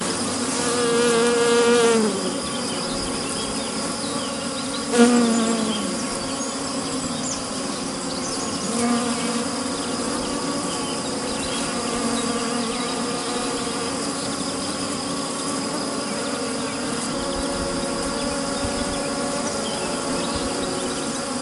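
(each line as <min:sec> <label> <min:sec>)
0:00.0 A bird sings in the distance outdoors. 0:21.4
0:00.0 Crickets chirping continuously in the distance outdoors. 0:21.4
0:00.0 Several bees hum outdoors in the background. 0:21.4
0:00.6 A bumblebee hums outdoors. 0:02.2
0:04.9 A bumblebee hums outdoors. 0:05.9
0:08.7 A bumblebee hums outdoors. 0:09.5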